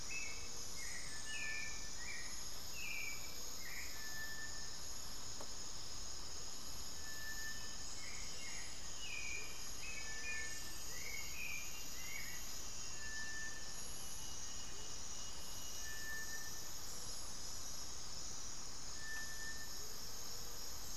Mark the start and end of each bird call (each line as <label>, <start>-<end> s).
Hauxwell's Thrush (Turdus hauxwelli), 0.0-12.6 s
Gray-fronted Dove (Leptotila rufaxilla), 0.1-1.0 s
Plain-winged Antshrike (Thamnophilus schistaceus), 7.9-10.4 s
Amazonian Motmot (Momotus momota), 9.0-11.3 s